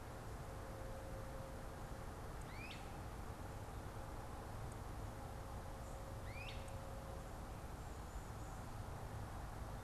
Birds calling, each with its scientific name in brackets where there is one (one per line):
Great Crested Flycatcher (Myiarchus crinitus)